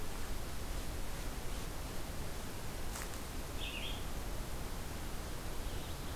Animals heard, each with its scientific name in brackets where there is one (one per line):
Red-eyed Vireo (Vireo olivaceus)
Ovenbird (Seiurus aurocapilla)